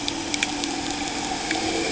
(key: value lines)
label: anthrophony, boat engine
recorder: HydroMoth